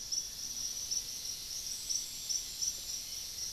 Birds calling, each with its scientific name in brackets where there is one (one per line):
Cinnamon-rumped Foliage-gleaner (Philydor pyrrhodes)